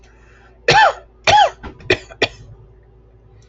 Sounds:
Cough